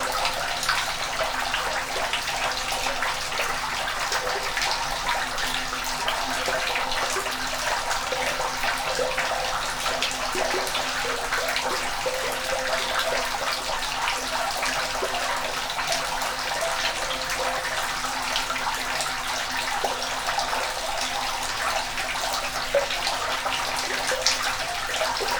Are there any people communicating?
no